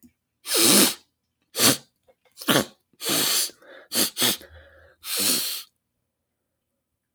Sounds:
Sniff